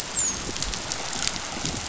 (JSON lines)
{"label": "biophony, dolphin", "recorder": "SoundTrap 500"}